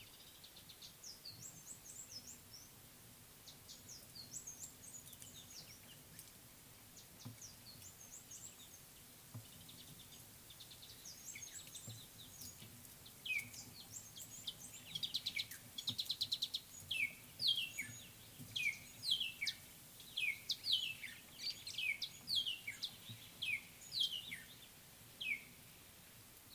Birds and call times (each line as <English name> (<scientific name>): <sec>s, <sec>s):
Reichenow's Seedeater (Crithagra reichenowi): 4.5s, 11.6s
Spotted Morning-Thrush (Cichladusa guttata): 13.3s, 17.6s, 20.8s
Mariqua Sunbird (Cinnyris mariquensis): 16.2s
Scarlet-chested Sunbird (Chalcomitra senegalensis): 19.5s